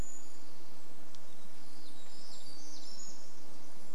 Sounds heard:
unidentified sound, Brown Creeper call, unidentified bird chip note, warbler song

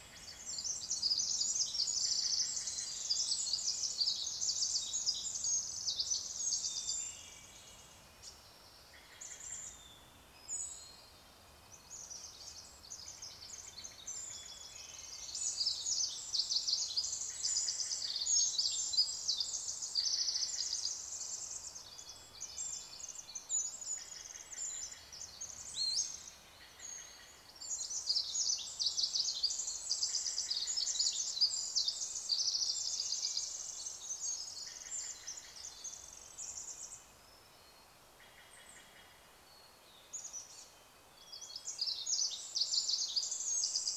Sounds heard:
Pacific Wren song, Hermit Thrush song, Red-breasted Nuthatch song, Brown Creeper call, Steller's Jay call, Chestnut-backed Chickadee call

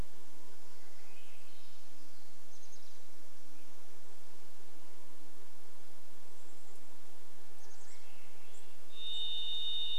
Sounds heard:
Swainson's Thrush song, insect buzz, Chestnut-backed Chickadee call

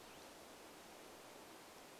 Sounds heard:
Hutton's Vireo song

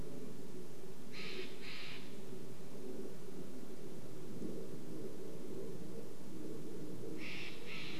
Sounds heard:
airplane, Steller's Jay call

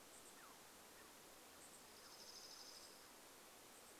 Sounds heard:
unidentified bird chip note, Douglas squirrel chirp, Chipping Sparrow song

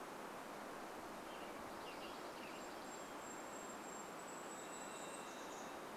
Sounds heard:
Varied Thrush song, Western Tanager song, Golden-crowned Kinglet song, Dark-eyed Junco song

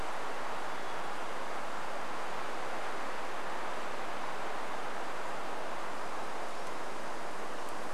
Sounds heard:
insect buzz, Hermit Thrush song

